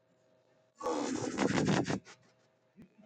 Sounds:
Laughter